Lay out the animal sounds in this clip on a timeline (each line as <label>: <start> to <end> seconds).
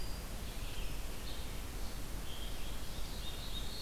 Red-eyed Vireo (Vireo olivaceus): 0.0 to 3.8 seconds
Black-throated Blue Warbler (Setophaga caerulescens): 2.9 to 3.8 seconds